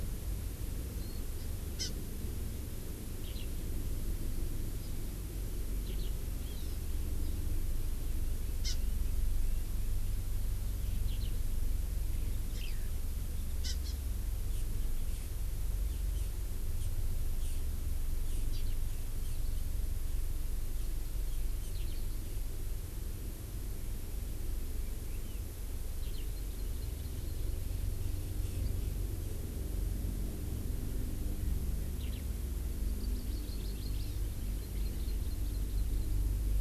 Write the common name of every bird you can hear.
Hawaii Amakihi, Eurasian Skylark